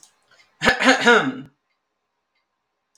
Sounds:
Throat clearing